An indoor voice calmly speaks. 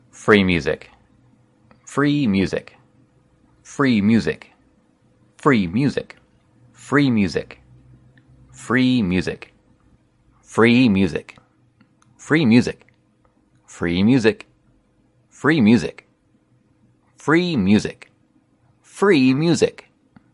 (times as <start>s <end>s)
0.3s 0.8s, 1.9s 2.7s, 3.7s 4.5s, 5.4s 6.2s, 6.9s 7.6s, 8.7s 9.5s, 10.5s 11.3s, 12.2s 12.8s, 13.8s 14.4s, 15.4s 16.0s, 17.2s 18.1s, 19.0s 19.8s